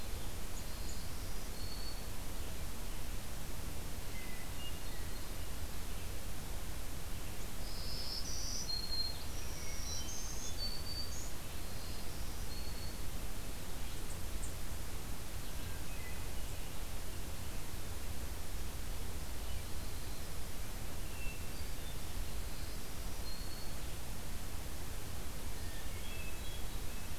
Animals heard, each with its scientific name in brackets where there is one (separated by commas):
Black-throated Green Warbler (Setophaga virens), Yellow-rumped Warbler (Setophaga coronata), Red-eyed Vireo (Vireo olivaceus), Hermit Thrush (Catharus guttatus)